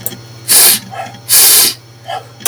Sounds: Sniff